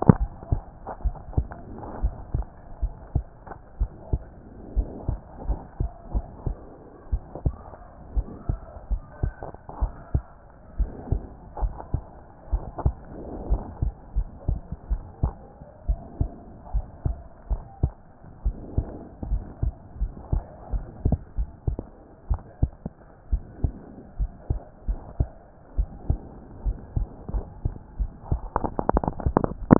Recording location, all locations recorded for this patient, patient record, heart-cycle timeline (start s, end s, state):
pulmonary valve (PV)
aortic valve (AV)+pulmonary valve (PV)+tricuspid valve (TV)+mitral valve (MV)
#Age: Child
#Sex: Female
#Height: 124.0 cm
#Weight: 25.1 kg
#Pregnancy status: False
#Murmur: Absent
#Murmur locations: nan
#Most audible location: nan
#Systolic murmur timing: nan
#Systolic murmur shape: nan
#Systolic murmur grading: nan
#Systolic murmur pitch: nan
#Systolic murmur quality: nan
#Diastolic murmur timing: nan
#Diastolic murmur shape: nan
#Diastolic murmur grading: nan
#Diastolic murmur pitch: nan
#Diastolic murmur quality: nan
#Outcome: Abnormal
#Campaign: 2014 screening campaign
0.00	0.77	unannotated
0.77	1.04	diastole
1.04	1.16	S1
1.16	1.36	systole
1.36	1.48	S2
1.48	2.02	diastole
2.02	2.14	S1
2.14	2.34	systole
2.34	2.44	S2
2.44	2.82	diastole
2.82	2.94	S1
2.94	3.14	systole
3.14	3.24	S2
3.24	3.80	diastole
3.80	3.90	S1
3.90	4.12	systole
4.12	4.22	S2
4.22	4.76	diastole
4.76	4.88	S1
4.88	5.08	systole
5.08	5.18	S2
5.18	5.48	diastole
5.48	5.60	S1
5.60	5.80	systole
5.80	5.90	S2
5.90	6.14	diastole
6.14	6.24	S1
6.24	6.46	systole
6.46	6.56	S2
6.56	7.12	diastole
7.12	7.22	S1
7.22	7.44	systole
7.44	7.56	S2
7.56	8.14	diastole
8.14	8.26	S1
8.26	8.48	systole
8.48	8.58	S2
8.58	8.90	diastole
8.90	9.02	S1
9.02	9.22	systole
9.22	9.34	S2
9.34	9.80	diastole
9.80	9.92	S1
9.92	10.12	systole
10.12	10.24	S2
10.24	10.78	diastole
10.78	10.90	S1
10.90	11.10	systole
11.10	11.22	S2
11.22	11.62	diastole
11.62	11.74	S1
11.74	11.92	systole
11.92	12.02	S2
12.02	12.52	diastole
12.52	12.64	S1
12.64	12.84	systole
12.84	12.96	S2
12.96	13.48	diastole
13.48	13.62	S1
13.62	13.82	systole
13.82	13.92	S2
13.92	14.16	diastole
14.16	14.28	S1
14.28	14.48	systole
14.48	14.58	S2
14.58	14.90	diastole
14.90	15.02	S1
15.02	15.22	systole
15.22	15.34	S2
15.34	15.88	diastole
15.88	16.00	S1
16.00	16.18	systole
16.18	16.30	S2
16.30	16.74	diastole
16.74	16.86	S1
16.86	17.06	systole
17.06	17.16	S2
17.16	17.50	diastole
17.50	17.62	S1
17.62	17.82	systole
17.82	17.92	S2
17.92	18.44	diastole
18.44	18.56	S1
18.56	18.76	systole
18.76	18.86	S2
18.86	19.28	diastole
19.28	19.42	S1
19.42	19.62	systole
19.62	19.72	S2
19.72	20.00	diastole
20.00	20.12	S1
20.12	20.32	systole
20.32	20.44	S2
20.44	20.72	diastole
20.72	20.84	S1
20.84	21.04	systole
21.04	21.16	S2
21.16	21.38	diastole
21.38	21.48	S1
21.48	21.66	systole
21.66	21.80	S2
21.80	22.28	diastole
22.28	22.40	S1
22.40	22.60	systole
22.60	22.72	S2
22.72	23.30	diastole
23.30	23.42	S1
23.42	23.62	systole
23.62	23.74	S2
23.74	24.18	diastole
24.18	24.30	S1
24.30	24.50	systole
24.50	24.60	S2
24.60	24.88	diastole
24.88	25.00	S1
25.00	25.18	systole
25.18	25.28	S2
25.28	25.76	diastole
25.76	25.88	S1
25.88	26.08	systole
26.08	26.20	S2
26.20	26.66	diastole
26.66	26.76	S1
26.76	26.96	systole
26.96	27.08	S2
27.08	27.34	diastole
27.34	27.44	S1
27.44	27.64	systole
27.64	27.72	S2
27.72	27.98	diastole
27.98	28.10	S1
28.10	28.16	systole
28.16	29.79	unannotated